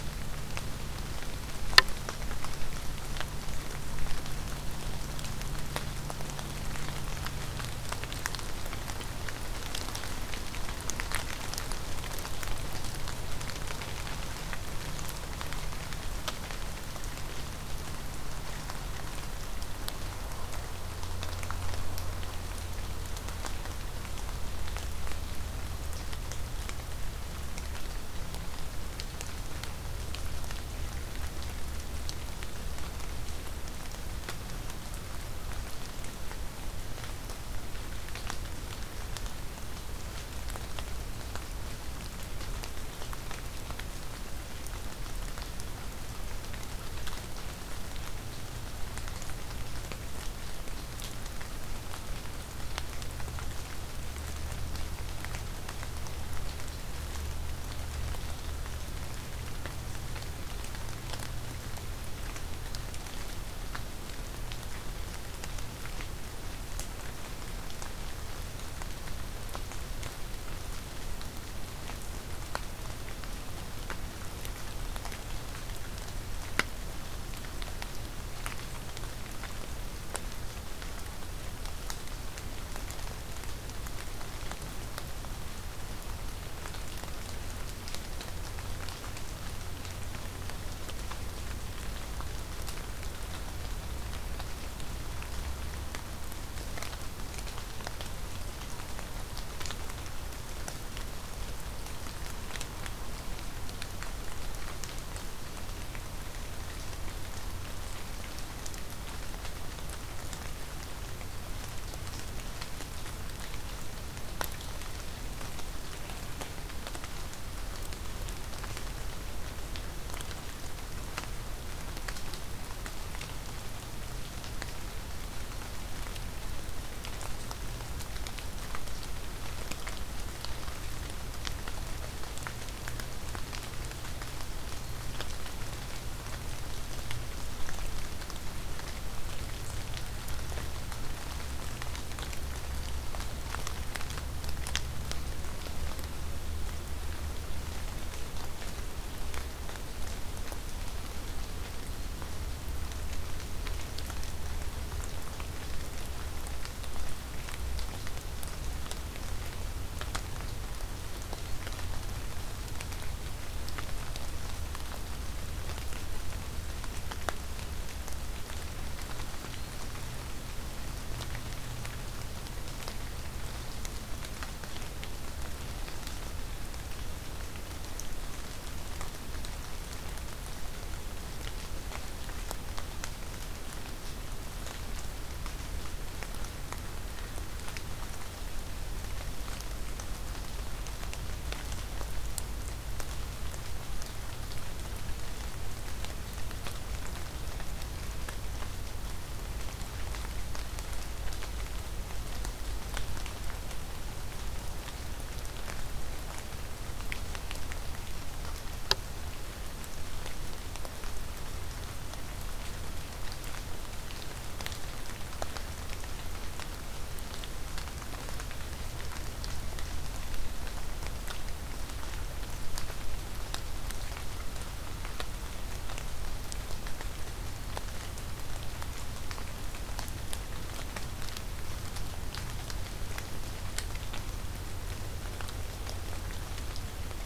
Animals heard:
forest ambience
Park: Acadia National Park